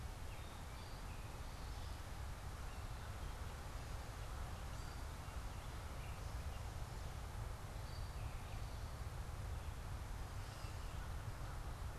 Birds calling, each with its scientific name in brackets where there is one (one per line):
Gray Catbird (Dumetella carolinensis)
Eastern Towhee (Pipilo erythrophthalmus)